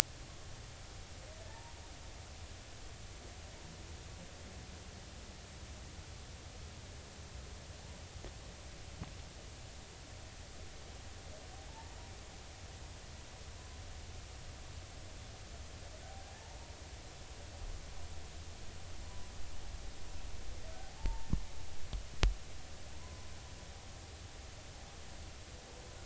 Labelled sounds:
1.5	1.7	humpback whale, 0.83 to 0.99 kHz
11.7	12.0	humpback whale, 0.83 to 0.99 kHz
16.3	16.6	humpback whale, 0.80 to 0.96 kHz
21.0	21.3	humpback whale, 0.83 to 0.96 kHz
23.0	23.3	humpback whale, 0.96 to 1.1 kHz

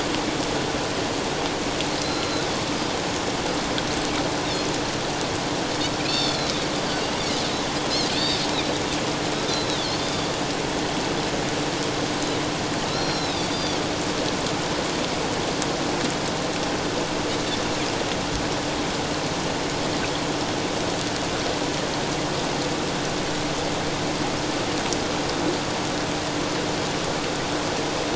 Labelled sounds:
2.0	2.5	Pacific white-sided dolphin, 3.9 to 4.2 kHz
6.0	6.4	Pacific white-sided dolphin, 2.3 to 4.6 kHz
8.1	8.4	Pacific white-sided dolphin, 3.4 to 4.7 kHz
9.5	10.3	Pacific white-sided dolphin, 3.3 to 4.8 kHz
12.9	13.8	Pacific white-sided dolphin, 3.3 to 5.7 kHz

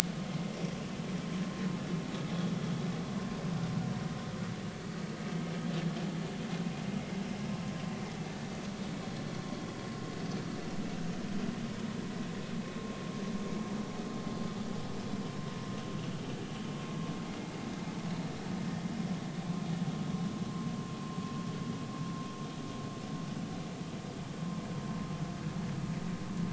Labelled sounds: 0.5	0.8	vessel noise, 5.5 to 5.7 kHz

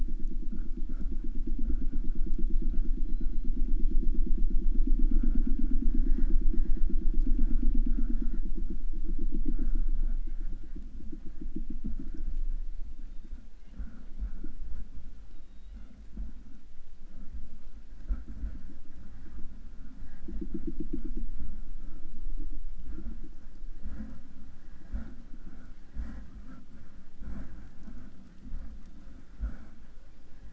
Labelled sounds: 2.8	3.8	killer whale, southern resident, J pod, call S01, 1.7 to 4.4 kHz
12.8	13.8	killer whale, southern resident, J pod, call S01, 1.8 to 4.0 kHz
15.2	16.1	killer whale, southern resident, J pod, call S01, 1.6 to 4.3 kHz
28.6	29.7	killer whale, 1.9 to 3.9 kHz

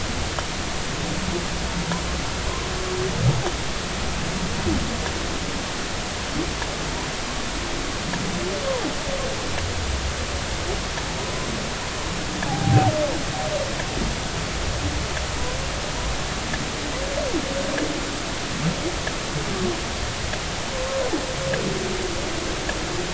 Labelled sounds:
12.5	12.9	humpback whale, 0.80 to 0.93 kHz

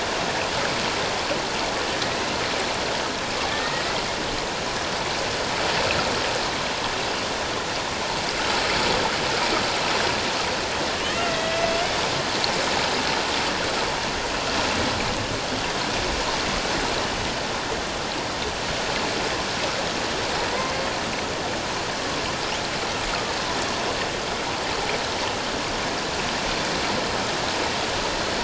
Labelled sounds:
3.5	3.8	killer whale, Bigg's (transient), 1.7 to 2.0 kHz
11.2	11.7	killer whale, Bigg's (transient), 1.9 to 2.1 kHz
20.5	20.8	killer whale, Bigg's (transient), 1.9 to 2.2 kHz

